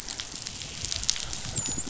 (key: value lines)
label: biophony, dolphin
recorder: SoundTrap 500